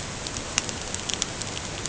{"label": "ambient", "recorder": "HydroMoth"}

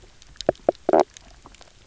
{"label": "biophony, knock croak", "recorder": "SoundTrap 300"}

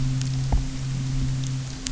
{"label": "anthrophony, boat engine", "recorder": "SoundTrap 300"}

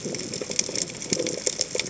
{"label": "biophony", "recorder": "HydroMoth"}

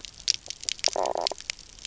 {"label": "biophony, knock croak", "recorder": "SoundTrap 300"}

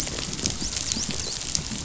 {"label": "biophony, dolphin", "recorder": "SoundTrap 500"}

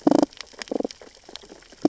{"label": "biophony, damselfish", "recorder": "SoundTrap 600 or HydroMoth"}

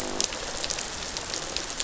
{"label": "biophony, rattle response", "recorder": "SoundTrap 500"}
{"label": "biophony, croak", "recorder": "SoundTrap 500"}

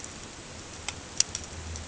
{"label": "ambient", "recorder": "HydroMoth"}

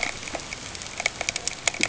{"label": "ambient", "recorder": "HydroMoth"}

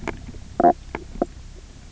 {"label": "biophony, knock croak", "recorder": "SoundTrap 300"}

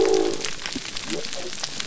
{"label": "biophony", "recorder": "SoundTrap 300"}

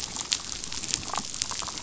{"label": "biophony, damselfish", "recorder": "SoundTrap 500"}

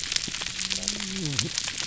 {"label": "biophony, whup", "recorder": "SoundTrap 300"}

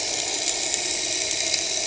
{"label": "anthrophony, boat engine", "recorder": "HydroMoth"}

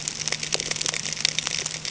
{"label": "ambient", "recorder": "HydroMoth"}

